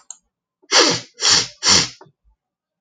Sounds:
Sniff